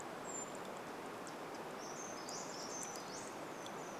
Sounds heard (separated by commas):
Brown Creeper call, Pacific Wren call, Brown Creeper song